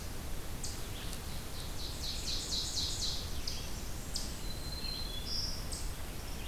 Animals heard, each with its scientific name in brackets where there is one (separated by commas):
Black-throated Green Warbler (Setophaga virens), Eastern Chipmunk (Tamias striatus), Ovenbird (Seiurus aurocapilla), Red-eyed Vireo (Vireo olivaceus)